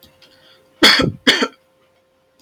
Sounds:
Cough